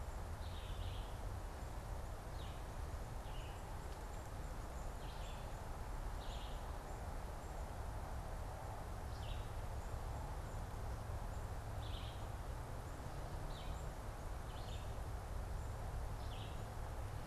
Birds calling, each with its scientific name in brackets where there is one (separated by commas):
Black-capped Chickadee (Poecile atricapillus), Red-eyed Vireo (Vireo olivaceus)